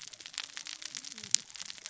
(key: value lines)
label: biophony, cascading saw
recorder: SoundTrap 600 or HydroMoth